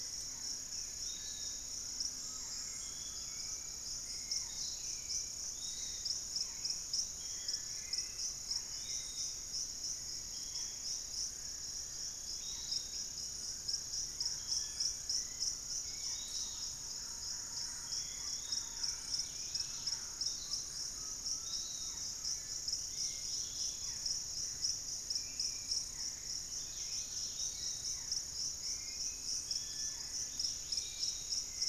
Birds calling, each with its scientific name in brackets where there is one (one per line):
Dusky-capped Greenlet (Pachysylvia hypoxantha)
Piratic Flycatcher (Legatus leucophaius)
Barred Forest-Falcon (Micrastur ruficollis)
Dusky-capped Flycatcher (Myiarchus tuberculifer)
Undulated Tinamou (Crypturellus undulatus)
Cinereous Tinamou (Crypturellus cinereus)
Hauxwell's Thrush (Turdus hauxwelli)
Bluish-fronted Jacamar (Galbula cyanescens)
unidentified bird
Fasciated Antshrike (Cymbilaimus lineatus)
Thrush-like Wren (Campylorhynchus turdinus)